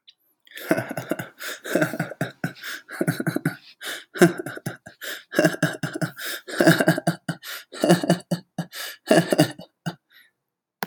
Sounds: Laughter